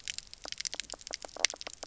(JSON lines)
{"label": "biophony, knock croak", "recorder": "SoundTrap 300"}